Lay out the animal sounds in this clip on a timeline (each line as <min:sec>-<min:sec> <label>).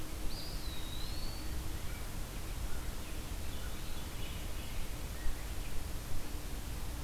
0:00.2-0:01.9 Eastern Wood-Pewee (Contopus virens)
0:03.4-0:05.1 Veery (Catharus fuscescens)